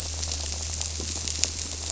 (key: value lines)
label: biophony
recorder: SoundTrap 300